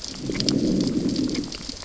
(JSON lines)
{"label": "biophony, growl", "recorder": "SoundTrap 600 or HydroMoth"}